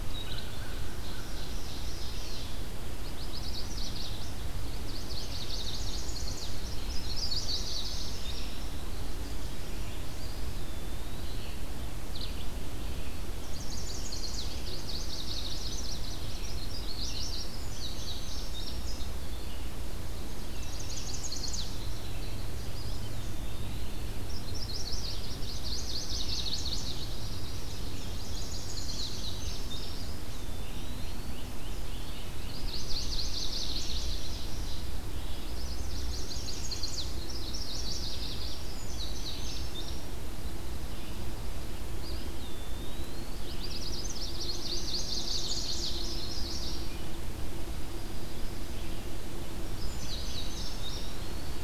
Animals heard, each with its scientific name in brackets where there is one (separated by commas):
Eastern Wood-Pewee (Contopus virens), Chipping Sparrow (Spizella passerina), unidentified call, American Crow (Corvus brachyrhynchos), Ovenbird (Seiurus aurocapilla), Chestnut-sided Warbler (Setophaga pensylvanica), Great Crested Flycatcher (Myiarchus crinitus), Indigo Bunting (Passerina cyanea)